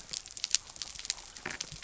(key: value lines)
label: biophony
recorder: SoundTrap 300